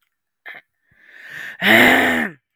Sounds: Throat clearing